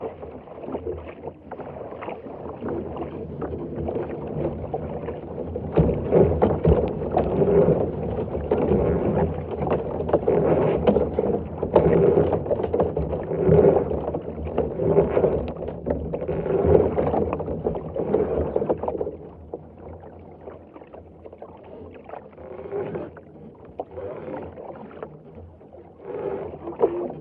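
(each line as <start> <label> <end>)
0.1 Water sounds in the front cabin of a sailboat. 27.2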